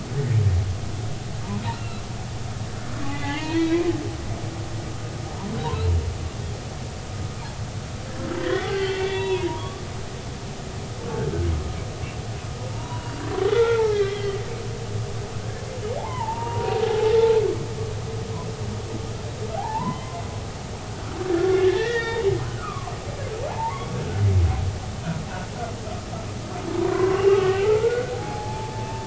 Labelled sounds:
1.7	2.0	humpback whale, 1.3 to 2.8 kHz
3.0	3.9	humpback whale, 0.90 to 4.4 kHz
8.4	9.8	humpback whale, 0.90 to 4.5 kHz
12.7	13.2	humpback whale, 0.86 to 3.0 kHz
13.5	14.4	humpback whale, 1.3 to 3.4 kHz
16.0	17.4	humpback whale, 0.80 to 1.1 kHz
19.6	20.2	humpback whale, 0.80 to 3.1 kHz
21.3	22.9	humpback whale, 0.96 to 3.8 kHz
23.5	23.9	humpback whale, 0.83 to 1.2 kHz
26.9	29.0	humpback whale, 0.80 to 2.9 kHz

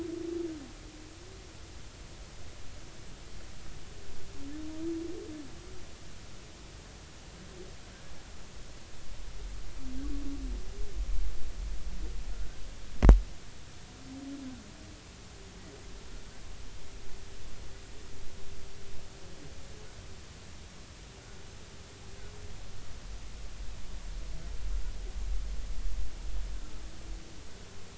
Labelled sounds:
12.3	12.6	humpback whale, 1.3 to 1.6 kHz

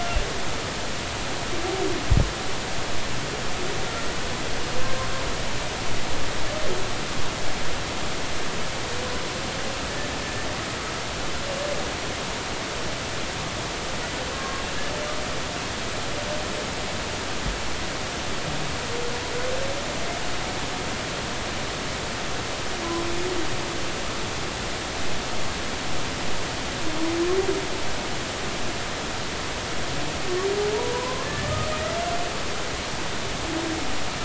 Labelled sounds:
14.3	14.6	humpback whale, 0.99 to 1.1 kHz
30.7	31.7	humpback whale, 0.83 to 1.9 kHz

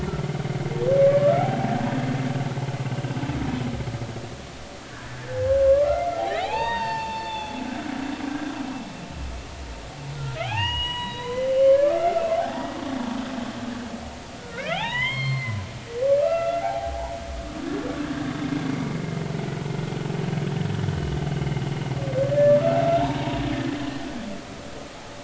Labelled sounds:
1.1	1.3	humpback whale, 1.6 to 1.8 kHz
2.8	3.1	humpback whale, 2.7 to 3.0 kHz
4.8	5.2	humpback whale, 1.4 to 1.8 kHz
6.2	8.5	humpback whale, 0.80 to 6.2 kHz
10.4	12.7	humpback whale, 0.80 to 7.9 kHz
14.4	15.6	humpback whale, 0.80 to 4.4 kHz
16.2	17.2	humpback whale, 0.80 to 2.8 kHz
22.2	23.4	humpback whale, 0.80 to 3.8 kHz

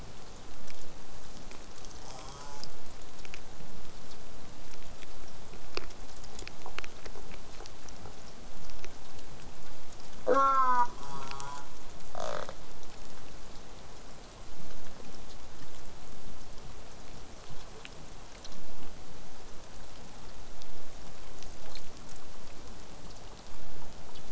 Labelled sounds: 2.0	2.7	killer whale, southern resident, J pod, call S04, 0.12 to 8.0 kHz
10.2	11.7	killer whale, southern resident, J pod, call S04, 0.12 to 8.0 kHz
12.2	12.5	killer whale, southern resident, rasp, 0.19 to 8.0 kHz

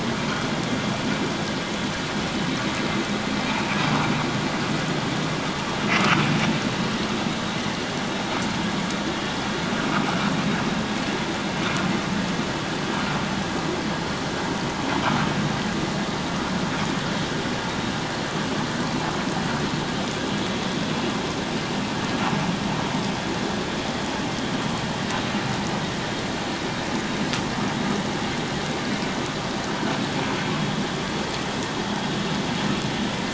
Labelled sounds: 3.4	3.8	vessel noise, 2.2 to 2.7 kHz

